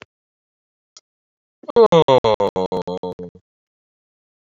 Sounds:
Sigh